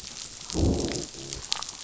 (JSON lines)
{"label": "biophony, growl", "recorder": "SoundTrap 500"}